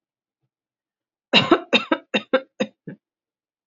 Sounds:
Cough